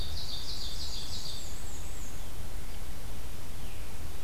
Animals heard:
Veery (Catharus fuscescens), Ovenbird (Seiurus aurocapilla), Black-and-white Warbler (Mniotilta varia)

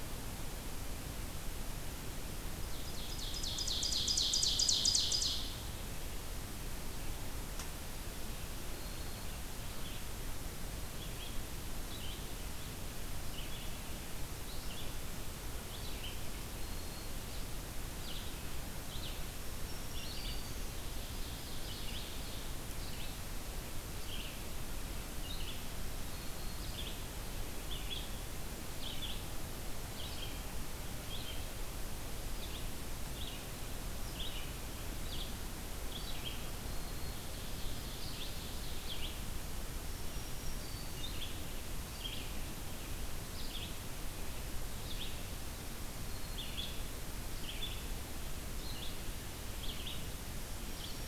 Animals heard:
Red-eyed Vireo (Vireo olivaceus), Black-throated Green Warbler (Setophaga virens), Ovenbird (Seiurus aurocapilla)

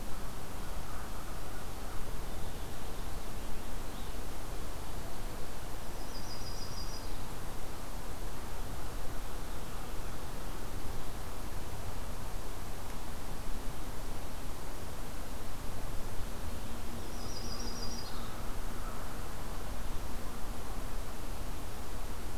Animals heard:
American Crow (Corvus brachyrhynchos), Purple Finch (Haemorhous purpureus), Yellow-rumped Warbler (Setophaga coronata)

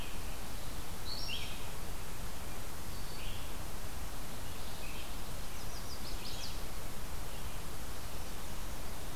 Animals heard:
Red-eyed Vireo (Vireo olivaceus), Chestnut-sided Warbler (Setophaga pensylvanica)

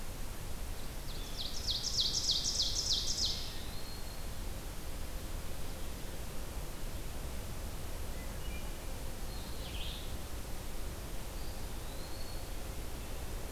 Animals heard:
Ovenbird (Seiurus aurocapilla), Blue-headed Vireo (Vireo solitarius), Blue Jay (Cyanocitta cristata), Hermit Thrush (Catharus guttatus), Eastern Wood-Pewee (Contopus virens)

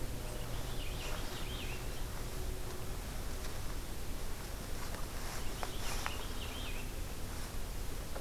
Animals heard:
Purple Finch (Haemorhous purpureus)

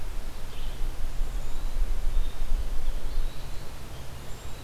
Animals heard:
Cedar Waxwing (Bombycilla cedrorum), Eastern Wood-Pewee (Contopus virens), Red-eyed Vireo (Vireo olivaceus)

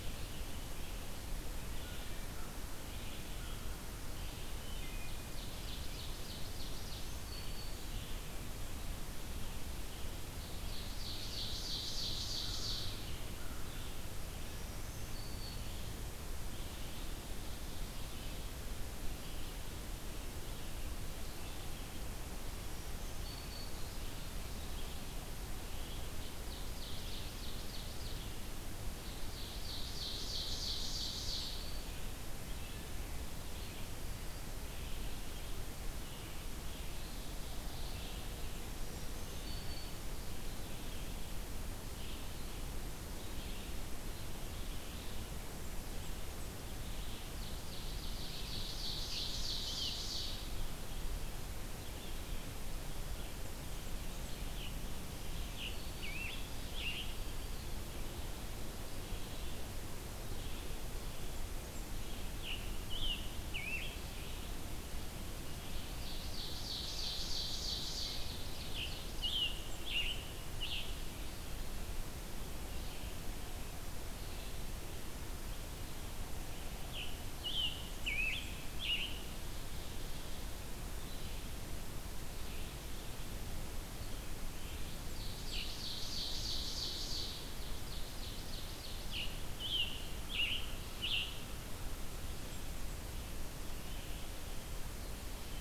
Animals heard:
Black-throated Green Warbler (Setophaga virens), Scarlet Tanager (Piranga olivacea), Red-eyed Vireo (Vireo olivaceus), Ovenbird (Seiurus aurocapilla), Wood Thrush (Hylocichla mustelina)

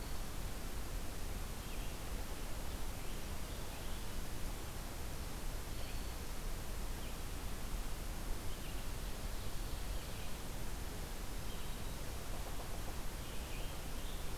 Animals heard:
Ovenbird (Seiurus aurocapilla), Red-eyed Vireo (Vireo olivaceus)

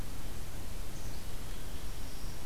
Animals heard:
Black-capped Chickadee (Poecile atricapillus), Black-throated Green Warbler (Setophaga virens)

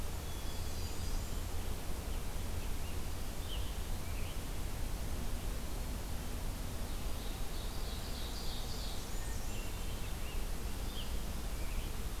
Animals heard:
Ovenbird (Seiurus aurocapilla), Scarlet Tanager (Piranga olivacea), Hermit Thrush (Catharus guttatus), Blackburnian Warbler (Setophaga fusca)

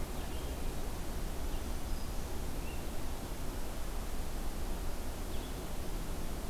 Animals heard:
Black-throated Green Warbler (Setophaga virens), Blue-headed Vireo (Vireo solitarius)

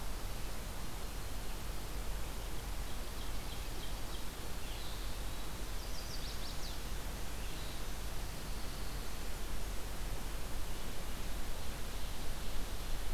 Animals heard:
Ovenbird (Seiurus aurocapilla), Pine Warbler (Setophaga pinus), Red-eyed Vireo (Vireo olivaceus), Chestnut-sided Warbler (Setophaga pensylvanica)

